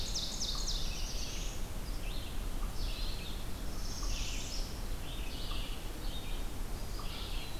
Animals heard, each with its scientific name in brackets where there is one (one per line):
Red-eyed Vireo (Vireo olivaceus)
Northern Parula (Setophaga americana)
Black-throated Blue Warbler (Setophaga caerulescens)
Eastern Wood-Pewee (Contopus virens)
unknown mammal
Ovenbird (Seiurus aurocapilla)